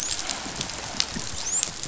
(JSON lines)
{"label": "biophony, dolphin", "recorder": "SoundTrap 500"}